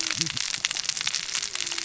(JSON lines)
{"label": "biophony, cascading saw", "recorder": "SoundTrap 600 or HydroMoth"}